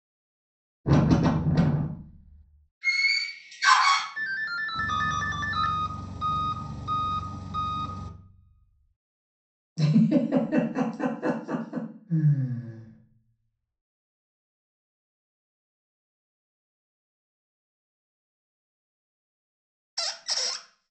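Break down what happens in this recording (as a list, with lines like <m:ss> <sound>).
0:01 there is wind
0:03 the sound of a door
0:04 a ringtone can be heard
0:05 an engine is audible
0:10 someone giggles
0:12 a person sighs
0:20 there is squeaking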